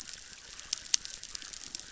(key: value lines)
label: biophony, chorus
recorder: SoundTrap 600